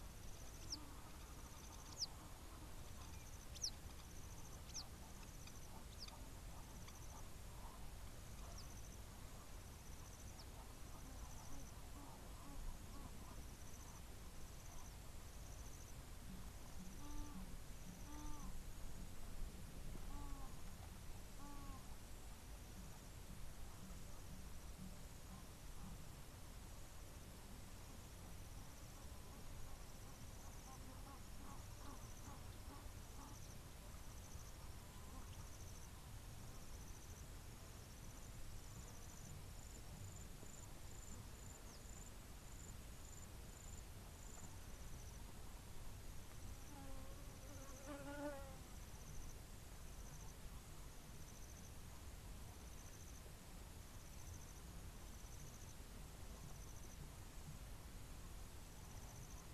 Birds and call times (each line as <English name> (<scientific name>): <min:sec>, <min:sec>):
Egyptian Goose (Alopochen aegyptiaca): 0:21.6, 0:32.0